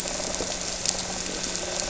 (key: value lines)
label: anthrophony, boat engine
recorder: SoundTrap 300

label: biophony
recorder: SoundTrap 300